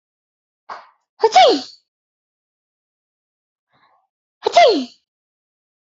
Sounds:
Sneeze